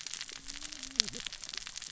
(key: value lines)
label: biophony, cascading saw
recorder: SoundTrap 600 or HydroMoth